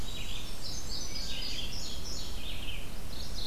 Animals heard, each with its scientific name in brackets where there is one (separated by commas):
Blackburnian Warbler (Setophaga fusca), Red-eyed Vireo (Vireo olivaceus), Indigo Bunting (Passerina cyanea), Wood Thrush (Hylocichla mustelina), Mourning Warbler (Geothlypis philadelphia)